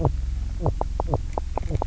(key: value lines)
label: biophony, knock croak
recorder: SoundTrap 300